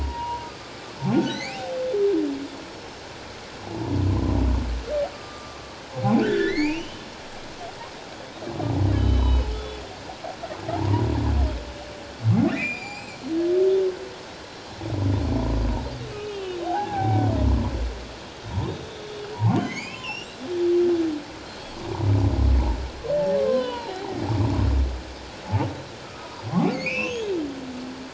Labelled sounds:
0.0	1.7	humpback whale, 0.78 to 4.8 kHz
2.7	3.0	humpback whale, 5.2 to 5.5 kHz
3.6	4.4	humpback whale, 0.78 to 1.1 kHz
5.1	7.0	humpback whale, 1.1 to 4.8 kHz
8.9	9.8	humpback whale, 2.9 to 4.0 kHz
10.7	11.1	humpback whale, 0.78 to 1.1 kHz
12.5	13.3	humpback whale, 2.2 to 7.7 kHz
16.1	17.3	humpback whale, 0.78 to 3.3 kHz
18.9	20.3	humpback whale, 0.78 to 5.8 kHz
23.4	24.2	humpback whale, 0.78 to 4.2 kHz
26.0	27.3	humpback whale, 0.78 to 6.8 kHz

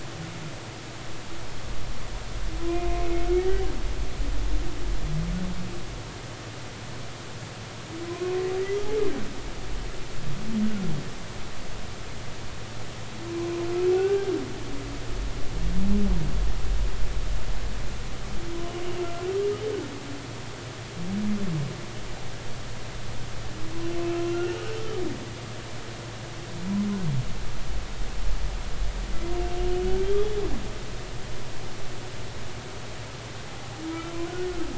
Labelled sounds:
3.0	3.7	humpback whale, 1.8 to 2.2 kHz
8.1	8.3	humpback whale, 0.96 to 1.1 kHz
13.3	13.5	humpback whale, 0.93 to 1.1 kHz
13.9	14.3	humpback whale, 0.80 to 1.6 kHz
19.0	19.3	humpback whale, 1.3 to 1.5 kHz
24.3	24.6	humpback whale, 1.3 to 2.9 kHz
30.0	30.4	humpback whale, 3.1 to 3.5 kHz

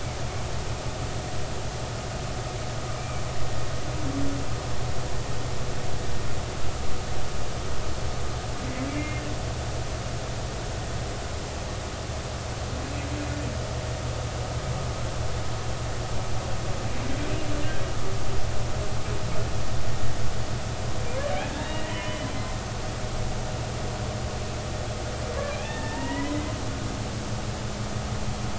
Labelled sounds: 3.0	3.2	humpback whale, 2.2 to 2.5 kHz
8.9	9.2	humpback whale, 2.0 to 2.5 kHz
21.5	22.3	humpback whale, 0.93 to 3.9 kHz
25.5	26.5	humpback whale, 0.86 to 3.0 kHz

